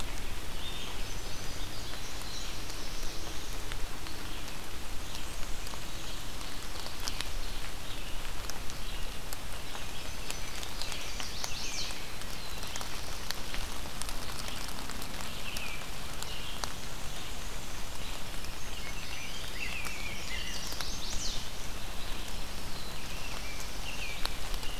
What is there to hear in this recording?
Red-eyed Vireo, Black-and-white Warbler, Black-throated Blue Warbler, Ovenbird, Indigo Bunting, Chestnut-sided Warbler, American Robin